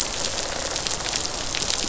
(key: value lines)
label: biophony, rattle response
recorder: SoundTrap 500